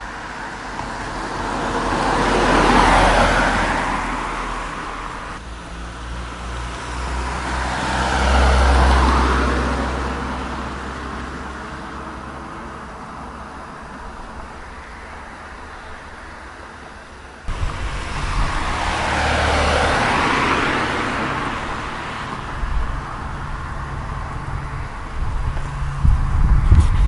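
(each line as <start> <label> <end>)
0.0 Cars passing by. 27.1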